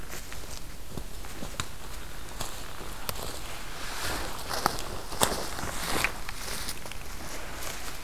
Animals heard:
forest ambience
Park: Acadia National Park